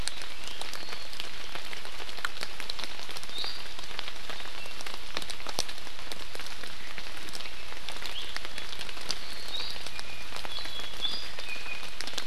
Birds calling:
Iiwi (Drepanis coccinea)

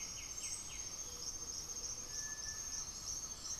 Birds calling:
Great Antshrike (Taraba major), Cinereous Tinamou (Crypturellus cinereus), Gray-fronted Dove (Leptotila rufaxilla), White-winged Becard (Pachyramphus polychopterus)

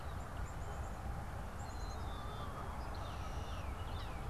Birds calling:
Canada Goose (Branta canadensis), Tufted Titmouse (Baeolophus bicolor), Red-winged Blackbird (Agelaius phoeniceus), Black-capped Chickadee (Poecile atricapillus)

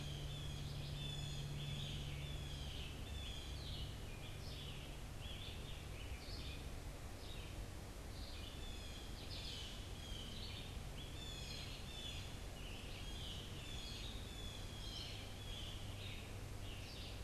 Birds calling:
Blue Jay (Cyanocitta cristata), Red-eyed Vireo (Vireo olivaceus), Scarlet Tanager (Piranga olivacea)

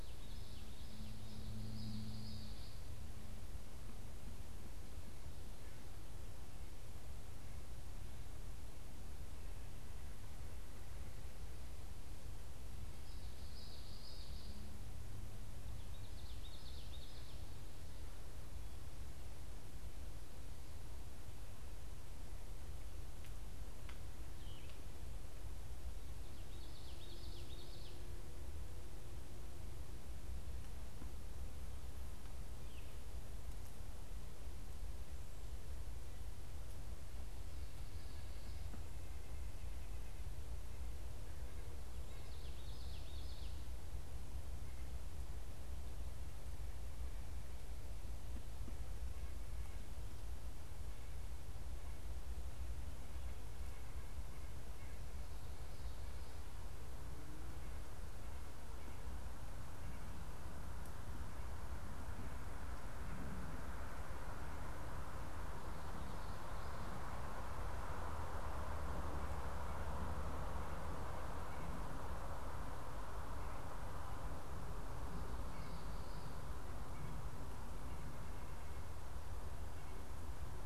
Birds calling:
White-breasted Nuthatch (Sitta carolinensis), Common Yellowthroat (Geothlypis trichas), Veery (Catharus fuscescens)

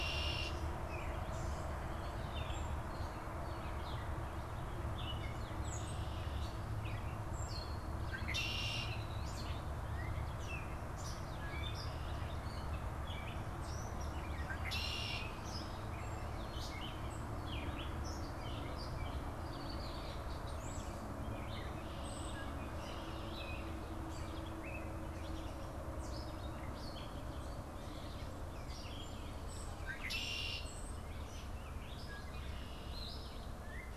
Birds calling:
European Starling (Sturnus vulgaris), Red-winged Blackbird (Agelaius phoeniceus), Gray Catbird (Dumetella carolinensis)

